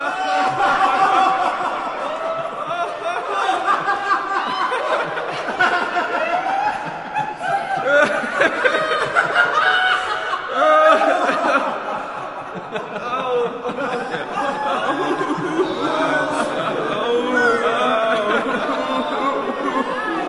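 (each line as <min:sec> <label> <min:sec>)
0:00.0 People laughing hysterically. 0:20.3
0:00.2 A man laughs hysterically. 0:01.8
0:03.2 A man laughs hysterically. 0:07.2
0:07.8 A man laughs loudly, seemingly in pain. 0:09.0
0:09.0 A man is laughing maniacally in a high pitch. 0:10.1
0:10.4 A man laughs loudly, seemingly in pain. 0:12.1
0:13.0 Men moaning in pain while laughing. 0:20.3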